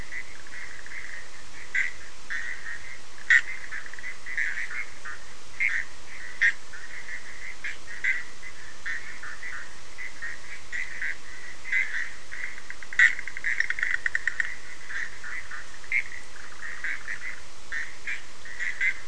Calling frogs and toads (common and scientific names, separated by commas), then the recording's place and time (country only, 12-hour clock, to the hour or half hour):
Bischoff's tree frog (Boana bischoffi)
Brazil, 3:30am